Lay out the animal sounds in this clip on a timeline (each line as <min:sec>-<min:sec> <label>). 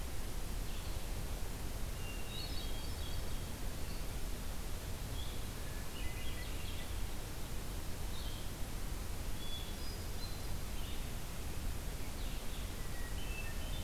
0:00.0-0:13.8 Blue-headed Vireo (Vireo solitarius)
0:01.8-0:03.6 Hermit Thrush (Catharus guttatus)
0:05.6-0:07.0 Hermit Thrush (Catharus guttatus)
0:09.3-0:10.5 Hermit Thrush (Catharus guttatus)
0:12.7-0:13.8 Hermit Thrush (Catharus guttatus)